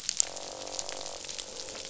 {"label": "biophony, croak", "recorder": "SoundTrap 500"}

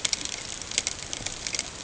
{"label": "ambient", "recorder": "HydroMoth"}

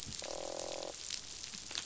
{"label": "biophony, croak", "recorder": "SoundTrap 500"}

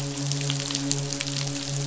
{"label": "biophony, midshipman", "recorder": "SoundTrap 500"}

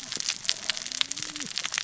{"label": "biophony, cascading saw", "recorder": "SoundTrap 600 or HydroMoth"}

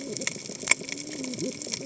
{"label": "biophony, cascading saw", "recorder": "HydroMoth"}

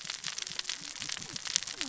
{"label": "biophony, cascading saw", "recorder": "SoundTrap 600 or HydroMoth"}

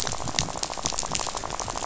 {"label": "biophony, rattle", "recorder": "SoundTrap 500"}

